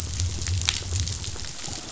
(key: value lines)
label: biophony
recorder: SoundTrap 500